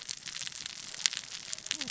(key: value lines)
label: biophony, cascading saw
recorder: SoundTrap 600 or HydroMoth